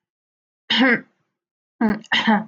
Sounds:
Throat clearing